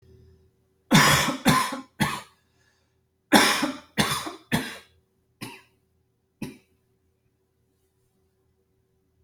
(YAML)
expert_labels:
- quality: good
  cough_type: dry
  dyspnea: false
  wheezing: false
  stridor: false
  choking: false
  congestion: false
  nothing: true
  diagnosis: COVID-19
  severity: mild
age: 33
gender: female
respiratory_condition: true
fever_muscle_pain: true
status: symptomatic